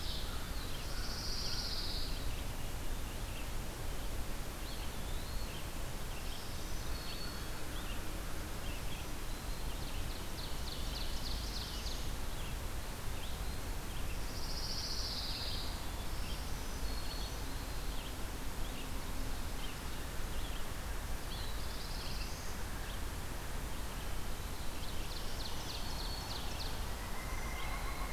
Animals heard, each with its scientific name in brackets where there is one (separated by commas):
American Crow (Corvus brachyrhynchos), Pine Warbler (Setophaga pinus), Eastern Wood-Pewee (Contopus virens), Ovenbird (Seiurus aurocapilla), Red-eyed Vireo (Vireo olivaceus), Black-throated Blue Warbler (Setophaga caerulescens), Black-throated Green Warbler (Setophaga virens)